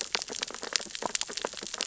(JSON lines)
{"label": "biophony, sea urchins (Echinidae)", "recorder": "SoundTrap 600 or HydroMoth"}